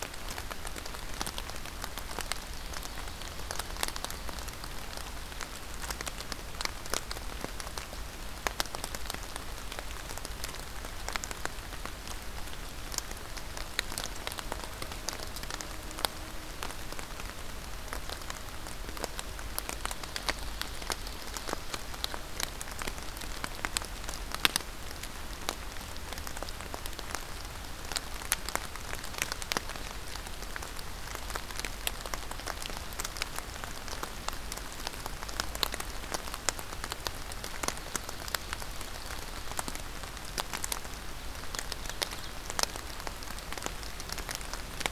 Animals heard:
forest ambience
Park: Marsh-Billings-Rockefeller National Historical Park